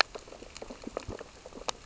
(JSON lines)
{"label": "biophony, sea urchins (Echinidae)", "recorder": "SoundTrap 600 or HydroMoth"}